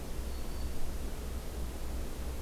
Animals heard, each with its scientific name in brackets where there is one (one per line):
Black-throated Green Warbler (Setophaga virens)